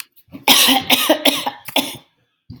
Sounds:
Cough